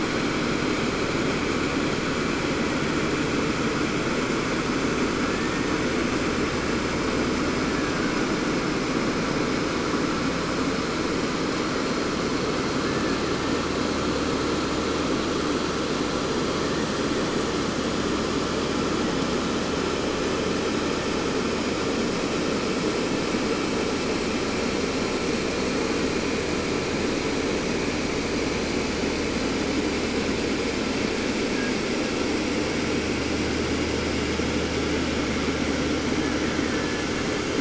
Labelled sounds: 5.1	6.2	killer whale, Bigg's (transient), 0.76 to 2.4 kHz
7.4	8.4	killer whale, Bigg's (transient), 0.68 to 2.4 kHz
12.8	13.7	killer whale, Bigg's (transient), 1.2 to 2.6 kHz
36.1	37.5	killer whale, Bigg's (transient), 0.65 to 2.7 kHz

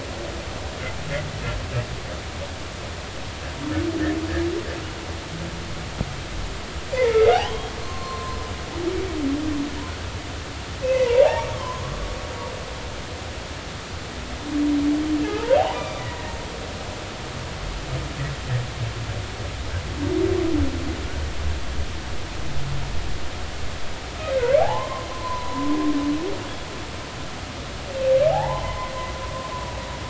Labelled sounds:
7.1	8.4	humpback whale, 0.96 to 3.3 kHz
10.8	11.8	humpback whale, 0.80 to 2.7 kHz
15.2	16.3	humpback whale, 0.80 to 3.6 kHz
24.3	25.7	humpback whale, 0.80 to 2.4 kHz
28.3	29.8	humpback whale, 0.80 to 2.1 kHz

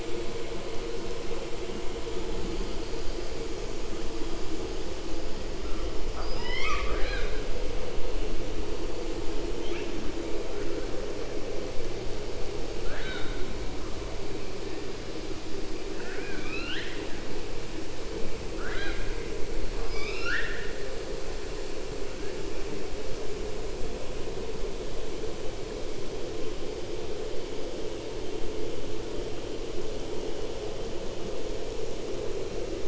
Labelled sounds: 6.0	7.4	killer whale, southern resident, 0.53 to 7.3 kHz
12.8	13.4	killer whale, southern resident, 0.64 to 4.5 kHz
15.9	17.1	killer whale, southern resident, 1.2 to 5.0 kHz
18.5	19.1	killer whale, southern resident, 0.67 to 4.9 kHz
19.7	20.8	killer whale, 1.1 to 6.5 kHz

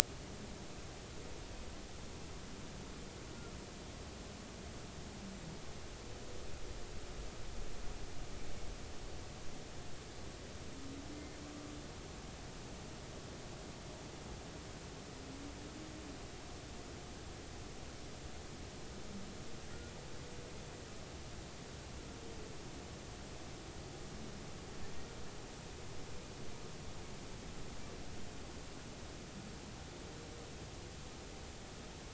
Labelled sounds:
11.1	11.4	humpback whale, 2.0 to 2.2 kHz

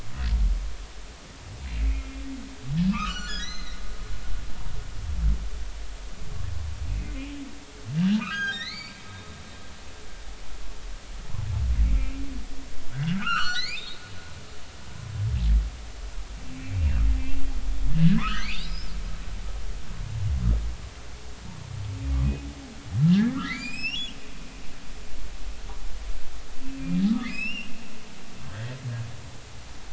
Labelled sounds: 1.8	2.1	humpback whale, 2.1 to 2.3 kHz
2.9	3.9	humpback whale, 0.90 to 7.4 kHz
7.0	7.3	humpback whale, 2.0 to 2.2 kHz
8.2	9.0	humpback whale, 1.1 to 4.9 kHz
12.9	14.6	humpback whale, 1.1 to 6.4 kHz
17.9	18.9	humpback whale, 0.96 to 5.4 kHz
23.1	24.0	humpback whale, 1.1 to 7.8 kHz
27.1	27.7	humpback whale, 1.1 to 8.0 kHz
28.4	28.8	humpback whale, 1.5 to 3.3 kHz

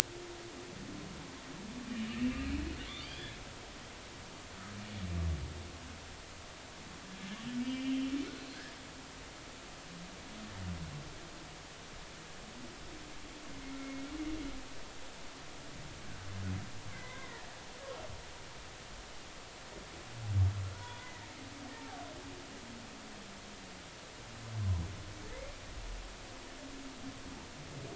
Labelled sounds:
1.9	2.4	humpback whale, 2.6 to 2.9 kHz
4.0	4.3	humpback whale, 2.9 to 3.5 kHz
7.6	8.0	humpback whale, 2.2 to 3.2 kHz
13.8	14.0	humpback whale, 2.1 to 2.2 kHz
16.9	17.5	humpback whale, 0.96 to 2.2 kHz
20.8	21.1	humpback whale, 0.93 to 3.6 kHz

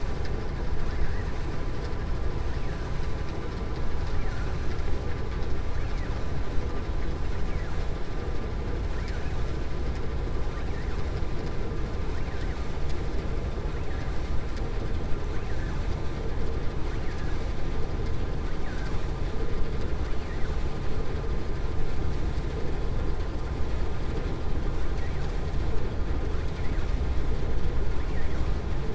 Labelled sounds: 4.0	4.5	vessel noise, 0.76 to 2.8 kHz
15.3	15.7	vessel noise, 0.87 to 2.8 kHz
28.0	28.4	vessel noise, 1.1 to 3.0 kHz

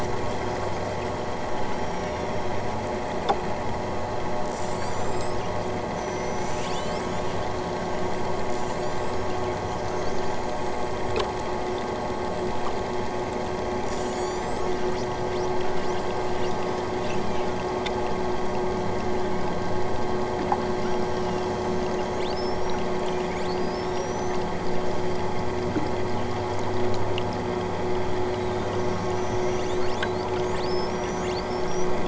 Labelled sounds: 1.7	2.5	killer whale, southern Alaska resident, 2.2 to 8.0 kHz
4.4	5.5	killer whale, southern Alaska resident, 2.3 to 8.0 kHz
5.9	7.3	killer whale, southern Alaska resident, 1.6 to 8.0 kHz
8.4	9.3	killer whale, southern Alaska resident, 3.9 to 8.0 kHz
13.8	14.8	killer whale, southern Alaska resident, 2.8 to 8.0 kHz
15.7	17.8	killer whale, southern Alaska resident, 6.0 to 8.0 kHz
20.8	24.5	killer whale, southern Alaska resident, 2.0 to 8.0 kHz
28.9	32.0	killer whale, southern Alaska resident, 3.3 to 8.0 kHz

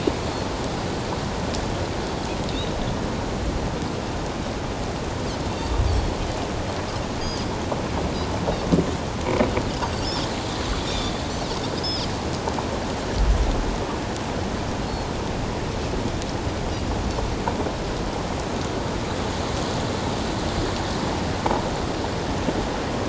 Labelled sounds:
2.5	2.8	Pacific white-sided dolphin, 3.5 to 3.9 kHz
7.2	7.5	Pacific white-sided dolphin, 4.6 to 5.1 kHz
9.8	10.1	Pacific white-sided dolphin, 4.4 to 4.8 kHz
10.9	12.1	Pacific white-sided dolphin, 3.5 to 5.3 kHz
14.9	15.1	Pacific white-sided dolphin, 4.2 to 4.4 kHz

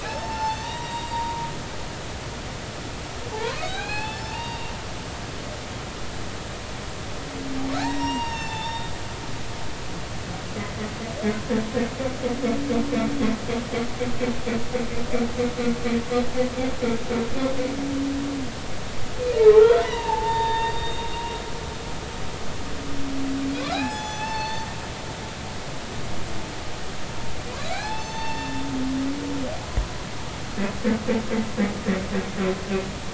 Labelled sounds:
0.0	1.5	humpback whale, 0.80 to 7.6 kHz
3.3	4.7	humpback whale, 0.80 to 4.6 kHz
7.7	8.9	humpback whale, 0.80 to 5.7 kHz
19.5	21.1	humpback whale, 0.80 to 3.8 kHz
23.6	24.7	humpback whale, 0.80 to 6.9 kHz
27.6	28.5	humpback whale, 0.80 to 6.3 kHz

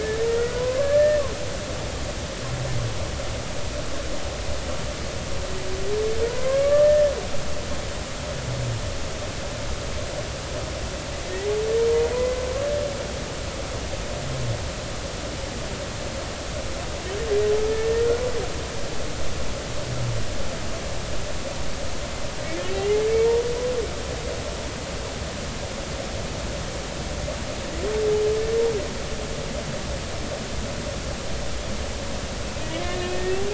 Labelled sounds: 0.0	1.2	humpback whale, 0.93 to 2.0 kHz
6.3	7.0	humpback whale, 0.93 to 1.8 kHz
17.7	18.1	humpback whale, 1.7 to 1.9 kHz
32.8	33.4	humpback whale, 1.7 to 2.6 kHz

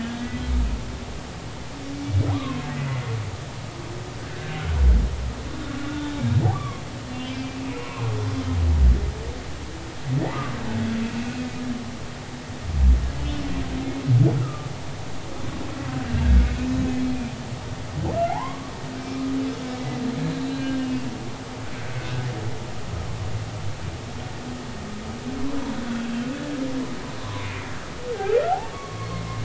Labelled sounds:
0.0	0.3	humpback whale, 1.6 to 1.7 kHz
2.3	2.6	humpback whale, 0.93 to 1.2 kHz
4.2	4.6	humpback whale, 1.5 to 1.9 kHz
6.5	8.1	humpback whale, 0.93 to 2.8 kHz
14.4	14.7	humpback whale, 1.2 to 1.4 kHz
18.3	19.7	humpback whale, 0.80 to 3.5 kHz
20.5	21.1	humpback whale, 1.5 to 4.3 kHz
22.0	22.3	humpback whale, 1.47 to 1.54 kHz
25.5	26.1	humpback whale, 0.93 to 1.6 kHz
27.2	27.5	humpback whale, 0.96 to 1.2 kHz
28.1	28.4	humpback whale, 0.80 to 0.86 kHz
28.7	29.3	humpback whale, 1.0 to 2.2 kHz

